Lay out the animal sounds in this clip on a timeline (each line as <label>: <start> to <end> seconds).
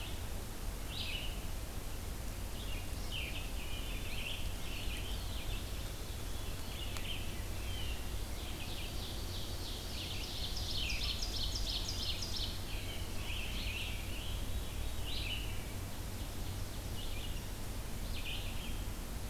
Red-eyed Vireo (Vireo olivaceus): 0.0 to 19.3 seconds
Scarlet Tanager (Piranga olivacea): 2.8 to 5.8 seconds
Blue Jay (Cyanocitta cristata): 7.5 to 8.1 seconds
Ovenbird (Seiurus aurocapilla): 8.1 to 12.6 seconds
Scarlet Tanager (Piranga olivacea): 12.1 to 14.4 seconds
Veery (Catharus fuscescens): 14.1 to 15.4 seconds